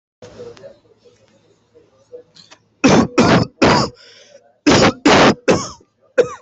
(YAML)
expert_labels:
- quality: ok
  cough_type: dry
  dyspnea: false
  wheezing: false
  stridor: false
  choking: false
  congestion: false
  nothing: true
  diagnosis: COVID-19
  severity: severe
age: 32
gender: male
respiratory_condition: false
fever_muscle_pain: false
status: symptomatic